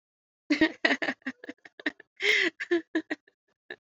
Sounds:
Laughter